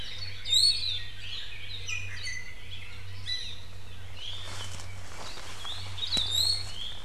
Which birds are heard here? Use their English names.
Iiwi, Hawaii Akepa, Apapane